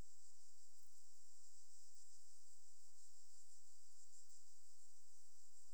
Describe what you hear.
Eupholidoptera schmidti, an orthopteran